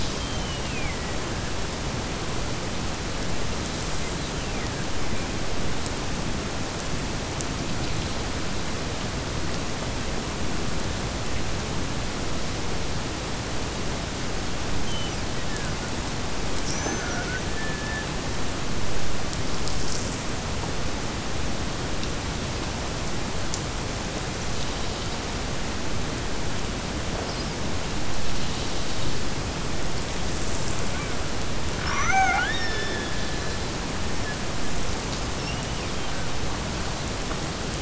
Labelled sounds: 0.1	1.2	killer whale, Bigg's (transient), Gulf of Alaska transient, 1.7 to 3.3 kHz
4.0	4.9	killer whale, Bigg's (transient), Gulf of Alaska transient, 1.5 to 4.2 kHz
14.7	16.0	killer whale, Bigg's (transient), Gulf of Alaska transient, 1.4 to 3.4 kHz
16.7	18.1	killer whale, Bigg's (transient), Gulf of Alaska transient, 0.25 to 6.3 kHz
31.7	33.6	killer whale, Bigg's (transient), Gulf of Alaska transient, 0.51 to 6.7 kHz

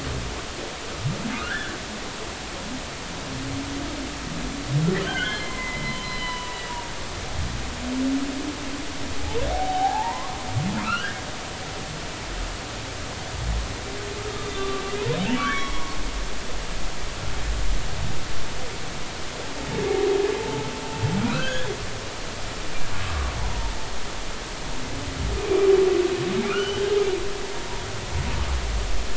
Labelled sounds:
1.3	1.8	humpback whale, 1.2 to 1.8 kHz
5.0	6.6	humpback whale, 0.90 to 4.1 kHz
9.5	11.2	humpback whale, 0.80 to 3.3 kHz
14.3	15.8	humpback whale, 0.96 to 3.7 kHz
16.5	16.8	humpback whale, 3.3 to 5.6 kHz
20.4	21.8	humpback whale, 0.83 to 3.6 kHz
23.0	23.8	humpback whale, 0.83 to 1.2 kHz
25.5	26.9	humpback whale, 1.2 to 3.2 kHz
27.6	27.8	humpback whale, 0.90 to 1.0 kHz

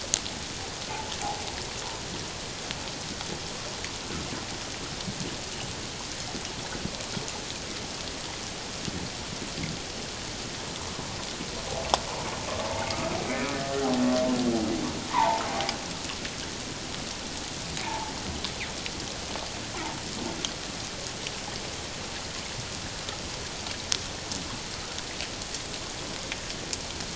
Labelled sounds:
13.3	13.9	humpback whale, 1.7 to 2.4 kHz
15.1	15.4	humpback whale, 0.78 to 1.2 kHz
17.8	18.1	humpback whale, 0.81 to 1.0 kHz

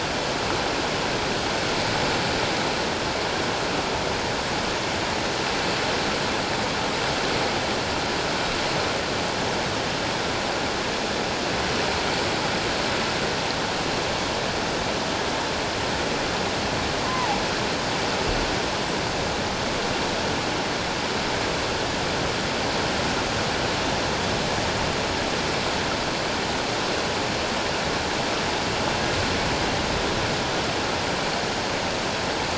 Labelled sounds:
17.0	17.4	killer whale, offshore, 0.78 to 1.2 kHz

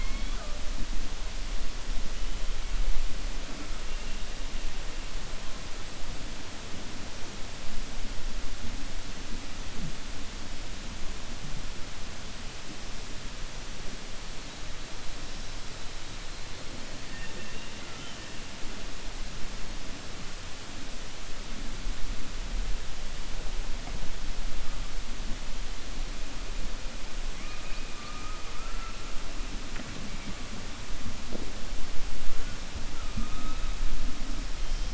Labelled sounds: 27.9	29.0	killer whale, 0.48 to 2.2 kHz

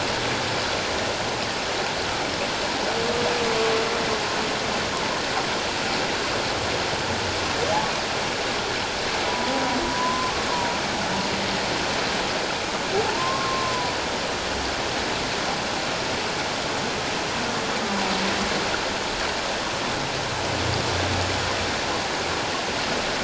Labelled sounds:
9.2	9.5	humpback whale, 0.94 to 1.0 kHz
9.9	10.3	humpback whale, 0.94 to 1.1 kHz
12.9	13.9	humpback whale, 0.78 to 1.1 kHz

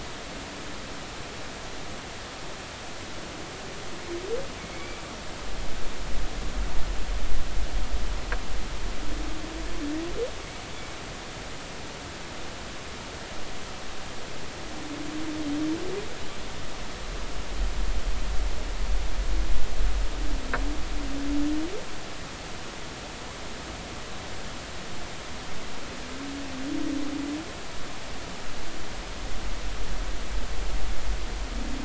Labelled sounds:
4.6	5.0	humpback whale, 2.1 to 2.4 kHz

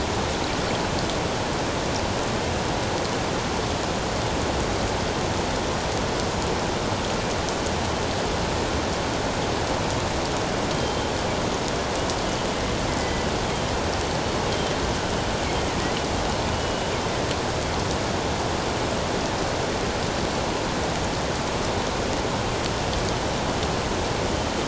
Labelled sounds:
10.7	11.1	killer whale, northern resident, G clan, GG subclan, 3.1 to 3.2 kHz
13.0	13.3	killer whale, northern resident, G clan, GG subclan, 1.9 to 2.1 kHz
16.5	16.8	killer whale, northern resident, G clan, GG subclan, 2.9 to 3.0 kHz

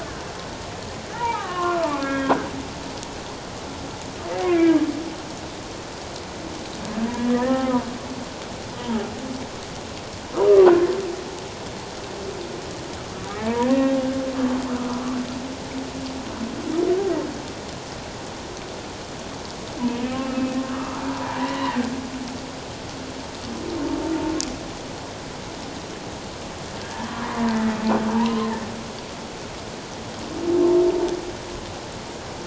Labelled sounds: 1.1	2.3	humpback whale, 0.78 to 3.6 kHz
4.4	4.9	humpback whale, 1.2 to 2.5 kHz
7.3	7.9	humpback whale, 0.78 to 1.9 kHz
8.8	9.0	humpback whale, 0.78 to 1.0 kHz
13.4	14.0	humpback whale, 0.81 to 3.8 kHz
20.2	21.8	humpback whale, 0.84 to 3.0 kHz
26.8	27.8	humpback whale, 0.88 to 2.0 kHz
28.1	28.5	humpback whale, 0.81 to 1.1 kHz

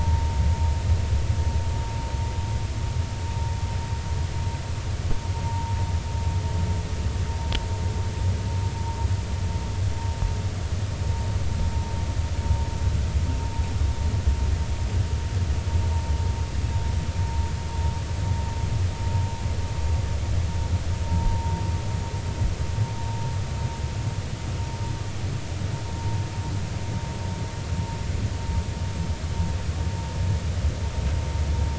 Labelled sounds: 5.4	5.7	vessel noise, 0.86 to 0.99 kHz
21.1	21.6	vessel noise, 0.86 to 0.99 kHz

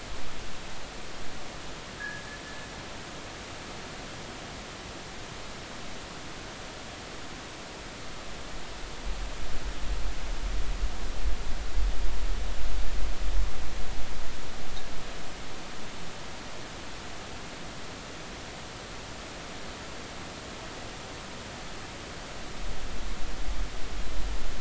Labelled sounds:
2.0	2.3	fishing gear, 1.5 to 1.8 kHz

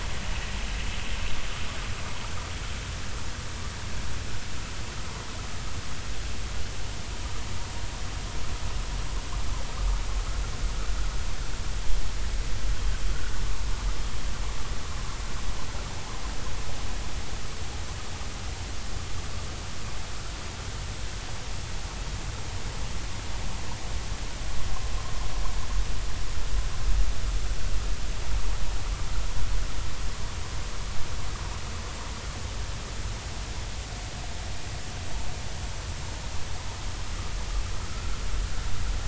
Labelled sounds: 37.9	38.1	vessel noise, 1.2 to 1.5 kHz

